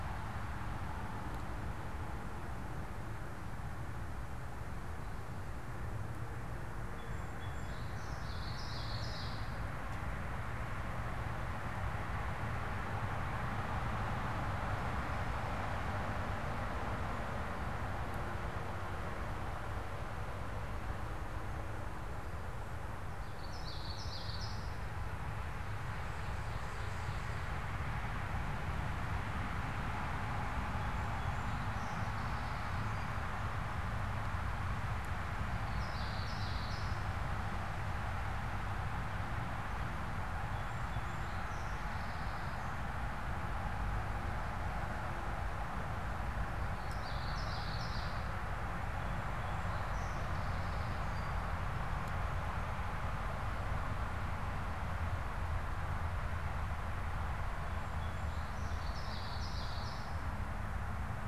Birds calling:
Song Sparrow (Melospiza melodia)
Ovenbird (Seiurus aurocapilla)
Common Yellowthroat (Geothlypis trichas)

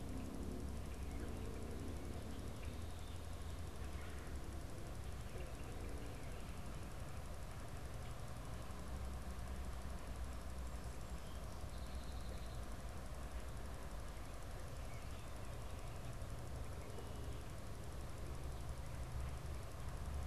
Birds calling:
Song Sparrow (Melospiza melodia)
Red-bellied Woodpecker (Melanerpes carolinus)

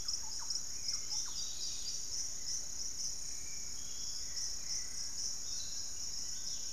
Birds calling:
Dusky-capped Greenlet (Pachysylvia hypoxantha)
Piratic Flycatcher (Legatus leucophaius)
Hauxwell's Thrush (Turdus hauxwelli)
Fasciated Antshrike (Cymbilaimus lineatus)
Thrush-like Wren (Campylorhynchus turdinus)

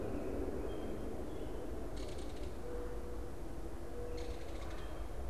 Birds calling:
Mourning Dove (Zenaida macroura)
Belted Kingfisher (Megaceryle alcyon)

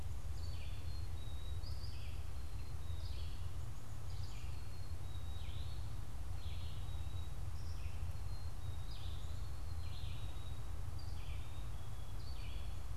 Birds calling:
Red-eyed Vireo (Vireo olivaceus)
Eastern Wood-Pewee (Contopus virens)
Black-capped Chickadee (Poecile atricapillus)

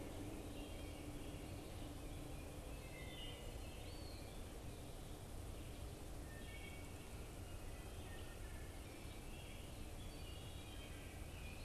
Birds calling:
Wood Thrush (Hylocichla mustelina)
Eastern Wood-Pewee (Contopus virens)

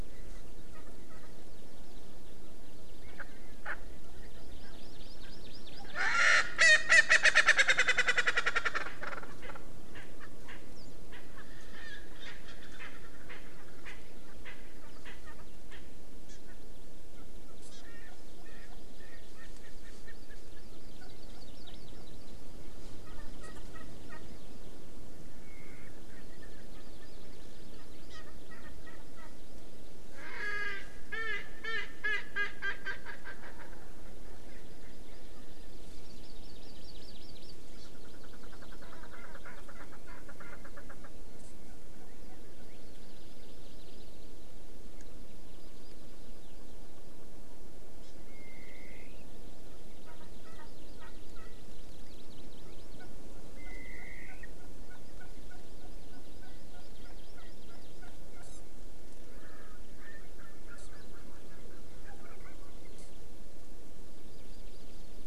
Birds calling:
Wild Turkey (Meleagris gallopavo)
Hawaii Amakihi (Chlorodrepanis virens)
Erckel's Francolin (Pternistis erckelii)

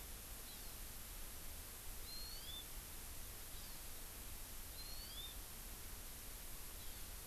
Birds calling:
Hawaii Amakihi (Chlorodrepanis virens)

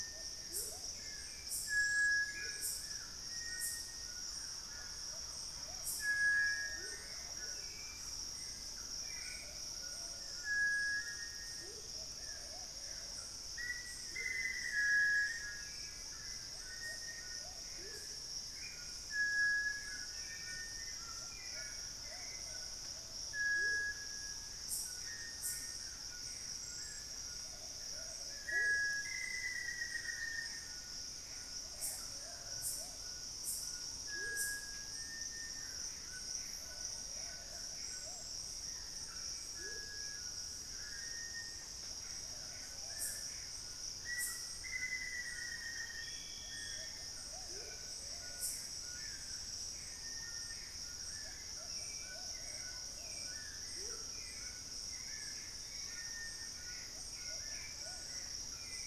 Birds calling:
Amazonian Motmot (Momotus momota)
Gray Antbird (Cercomacra cinerascens)
White-throated Toucan (Ramphastos tucanus)
Cinereous Tinamou (Crypturellus cinereus)
Plumbeous Pigeon (Patagioenas plumbea)
Black-faced Antthrush (Formicarius analis)
unidentified bird
Hauxwell's Thrush (Turdus hauxwelli)
Forest Elaenia (Myiopagis gaimardii)

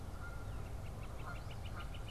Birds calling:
Canada Goose (Branta canadensis)
Eastern Phoebe (Sayornis phoebe)
Northern Flicker (Colaptes auratus)

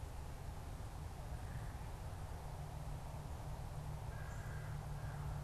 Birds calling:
American Crow (Corvus brachyrhynchos)

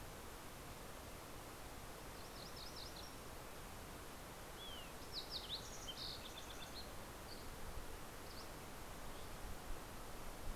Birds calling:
Fox Sparrow (Passerella iliaca)
MacGillivray's Warbler (Geothlypis tolmiei)
Dusky Flycatcher (Empidonax oberholseri)

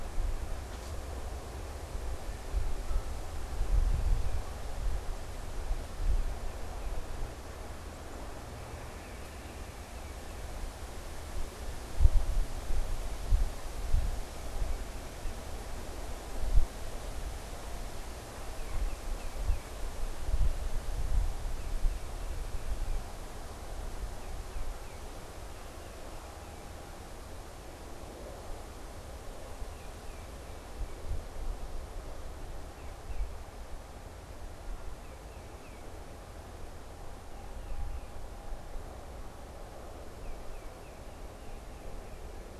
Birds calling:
Tufted Titmouse (Baeolophus bicolor)

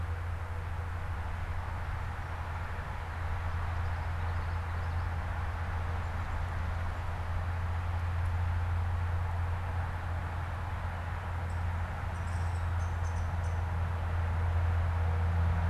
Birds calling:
Downy Woodpecker (Dryobates pubescens)
Common Yellowthroat (Geothlypis trichas)

